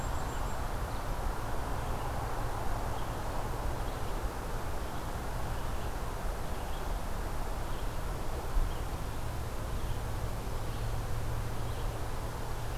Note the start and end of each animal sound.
0.0s-0.9s: Brown Creeper (Certhia americana)
0.0s-6.0s: Red-eyed Vireo (Vireo olivaceus)
6.3s-12.8s: Red-eyed Vireo (Vireo olivaceus)

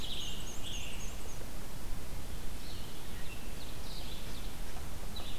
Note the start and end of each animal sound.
0.0s-1.1s: Scarlet Tanager (Piranga olivacea)
0.0s-1.7s: Black-and-white Warbler (Mniotilta varia)
0.0s-5.4s: Red-eyed Vireo (Vireo olivaceus)
2.9s-4.6s: Ovenbird (Seiurus aurocapilla)

